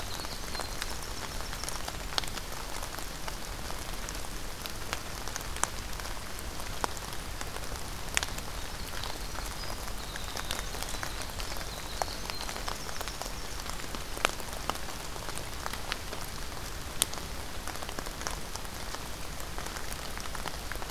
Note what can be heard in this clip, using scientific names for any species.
Troglodytes hiemalis